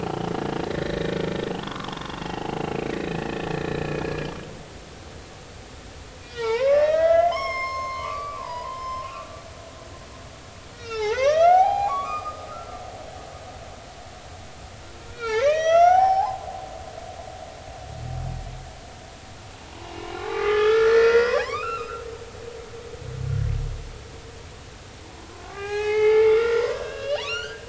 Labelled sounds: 0.6	1.2	humpback whale, 1.7 to 4.1 kHz
1.6	4.3	humpback whale, 0.80 to 3.2 kHz
6.2	10.1	humpback whale, 0.83 to 7.5 kHz
10.7	12.7	humpback whale, 0.80 to 6.4 kHz
15.1	16.4	humpback whale, 0.80 to 7.3 kHz
19.7	22.0	humpback whale, 0.83 to 4.8 kHz
25.5	27.6	humpback whale, 0.80 to 7.3 kHz

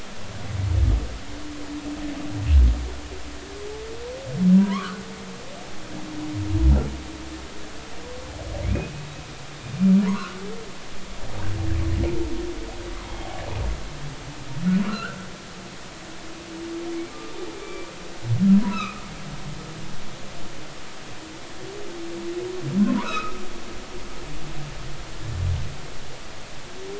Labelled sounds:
4.6	5.0	humpback whale, 0.93 to 1.6 kHz
8.6	8.9	humpback whale, 2.0 to 2.6 kHz
10.1	10.4	humpback whale, 0.93 to 1.5 kHz
13.0	13.3	humpback whale, 2.1 to 2.2 kHz
14.8	15.2	humpback whale, 1.1 to 2.9 kHz
17.1	17.9	humpback whale, 1.2 to 2.4 kHz
18.7	19.0	humpback whale, 1.1 to 2.7 kHz
22.8	23.4	humpback whale, 0.90 to 2.8 kHz

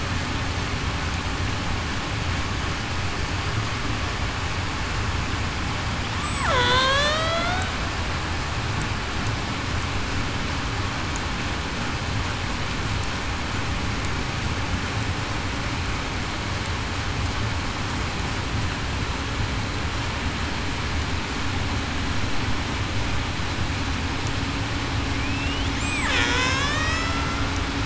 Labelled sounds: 6.5	7.7	killer whale, Bigg's (transient), 0.47 to 4.6 kHz
25.2	25.6	killer whale, Bigg's (transient), 2.2 to 3.1 kHz
26.0	27.2	killer whale, Bigg's (transient), 3.1 to 5.4 kHz

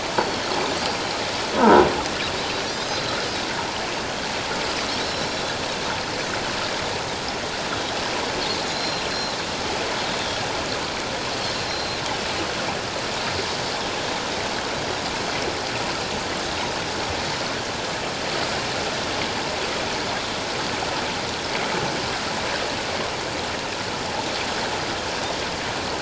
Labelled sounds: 0.1	1.0	Pacific white-sided dolphin, 4.3 to 5.7 kHz
1.6	1.8	croaking sound likely from a nearby submerged object, 0.84 to 1.6 kHz
2.6	3.1	Pacific white-sided dolphin, 3.8 to 6.3 kHz
5.0	5.3	Pacific white-sided dolphin, 3.9 to 4.1 kHz
8.7	9.4	Pacific white-sided dolphin, 3.9 to 4.2 kHz
11.5	12.0	Pacific white-sided dolphin, 3.9 to 4.2 kHz

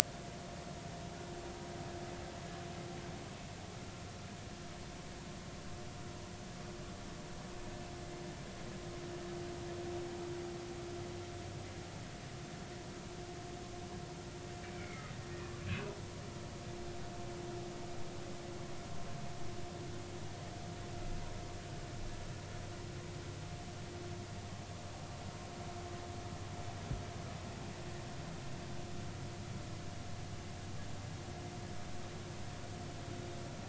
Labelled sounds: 14.6	15.6	humpback whale, 1.7 to 2.4 kHz

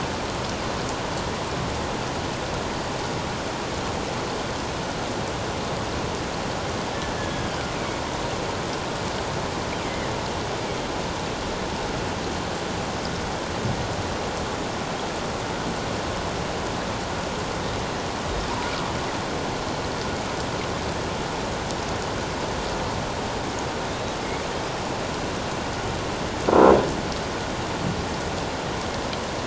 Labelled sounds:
7.2	7.5	killer whale, northern resident, G clan, 1.6 to 1.8 kHz

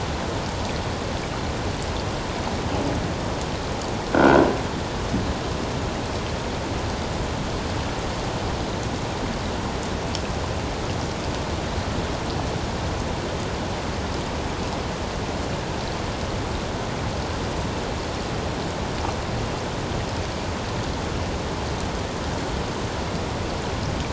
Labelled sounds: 4.1	4.5	croaking sound likely from a nearby submerged object, 1.3 to 1.6 kHz

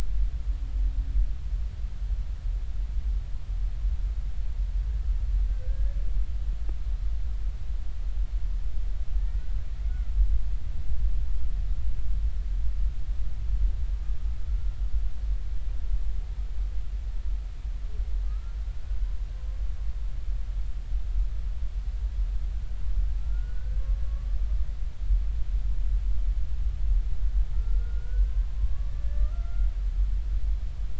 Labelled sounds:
5.7	6.0	humpback whale, 1.6 to 1.8 kHz
9.2	9.4	humpback whale, 1.7 to 2.0 kHz
9.8	10.1	humpback whale, 1.3 to 2.2 kHz
18.2	18.6	humpback whale, 1.2 to 1.4 kHz
23.2	23.8	humpback whale, 1.3 to 1.6 kHz
24.1	24.4	humpback whale, 1.1 to 1.2 kHz
27.5	29.7	humpback whale, 1.0 to 1.9 kHz

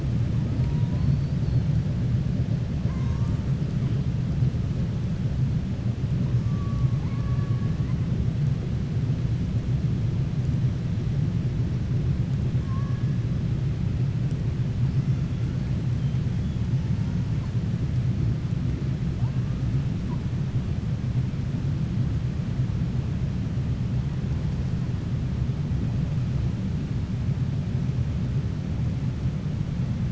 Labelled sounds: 2.8	3.4	killer whale, southern resident, 0.90 to 2.2 kHz
6.4	8.0	killer whale, southern resident, 0.81 to 2.4 kHz

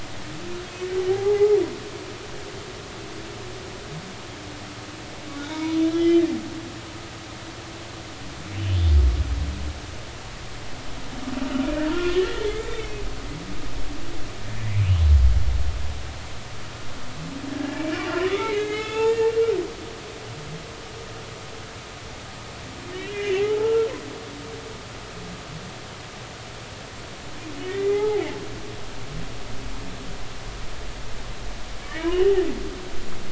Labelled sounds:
1.1	1.6	humpback whale, 0.80 to 0.90 kHz
5.5	6.2	humpback whale, 0.90 to 3.3 kHz
11.9	13.0	humpback whale, 0.90 to 3.7 kHz
14.6	14.9	humpback whale, 2.0 to 2.5 kHz
17.5	19.3	humpback whale, 0.80 to 6.9 kHz
22.9	23.9	humpback whale, 0.80 to 3.0 kHz
27.7	28.2	humpback whale, 0.80 to 2.1 kHz
31.9	32.3	humpback whale, 2.8 to 3.0 kHz

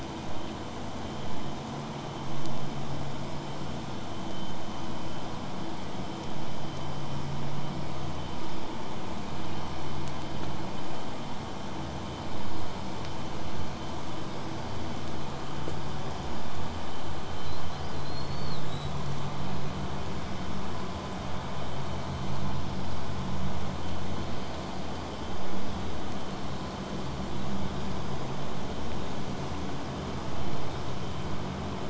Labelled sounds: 17.4	18.9	killer whale, 3.5 to 8.0 kHz

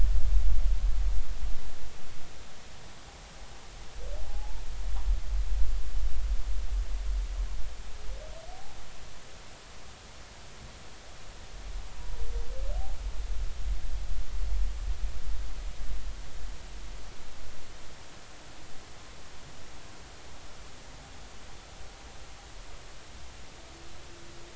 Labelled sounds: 4.3	4.6	humpback whale, 0.80 to 0.96 kHz
8.5	8.8	humpback whale, 0.80 to 0.86 kHz

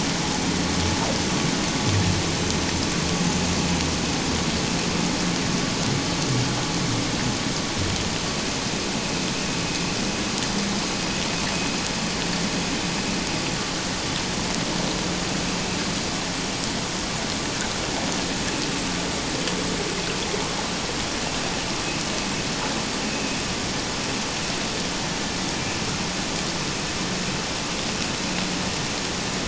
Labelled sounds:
23.1	23.4	vessel noise, 2.5 to 2.7 kHz

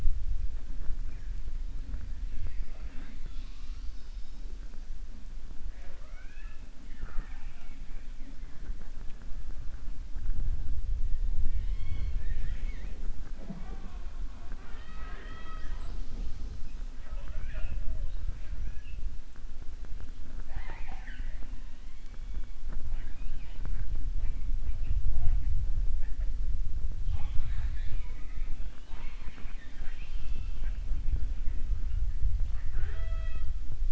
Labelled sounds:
14.3	16.6	killer whale, southern resident, 0.40 to 7.7 kHz
20.3	21.5	killer whale, southern resident, 0.36 to 4.2 kHz
28.7	30.8	killer whale, southern resident, 0.47 to 5.5 kHz

